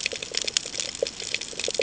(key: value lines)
label: ambient
recorder: HydroMoth